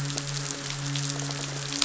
{"label": "biophony", "recorder": "SoundTrap 500"}
{"label": "biophony, midshipman", "recorder": "SoundTrap 500"}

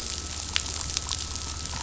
{"label": "anthrophony, boat engine", "recorder": "SoundTrap 500"}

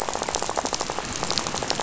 {"label": "biophony, rattle", "recorder": "SoundTrap 500"}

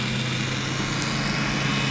{"label": "anthrophony, boat engine", "recorder": "SoundTrap 500"}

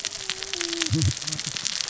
{"label": "biophony, cascading saw", "recorder": "SoundTrap 600 or HydroMoth"}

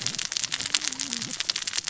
{"label": "biophony, cascading saw", "recorder": "SoundTrap 600 or HydroMoth"}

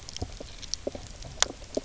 {"label": "biophony, knock croak", "recorder": "SoundTrap 300"}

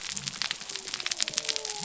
{"label": "biophony", "recorder": "SoundTrap 300"}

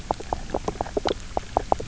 {"label": "biophony, knock croak", "recorder": "SoundTrap 300"}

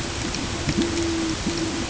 {"label": "ambient", "recorder": "HydroMoth"}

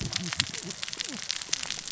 {"label": "biophony, cascading saw", "recorder": "SoundTrap 600 or HydroMoth"}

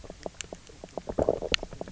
{"label": "biophony, low growl", "recorder": "SoundTrap 300"}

